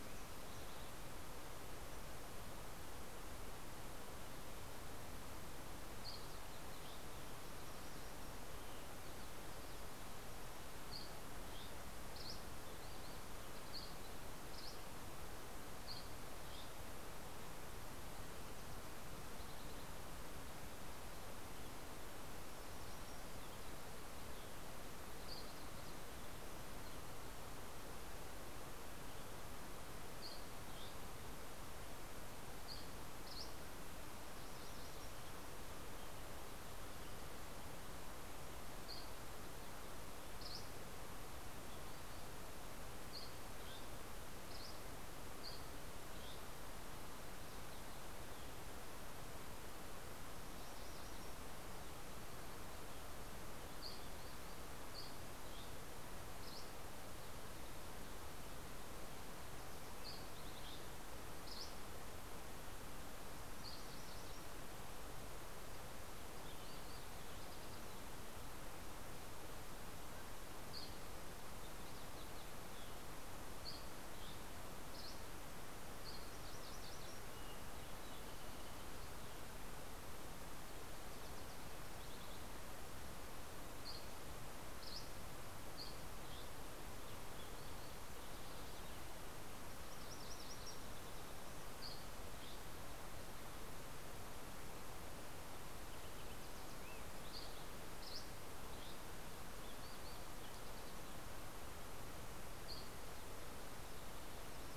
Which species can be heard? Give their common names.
Dusky Flycatcher, Yellow-rumped Warbler, MacGillivray's Warbler, White-crowned Sparrow, Fox Sparrow